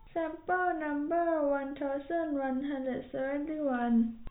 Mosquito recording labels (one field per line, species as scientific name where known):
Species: no mosquito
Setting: cup